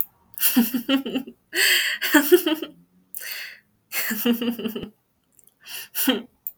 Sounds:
Laughter